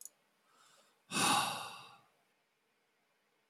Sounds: Sigh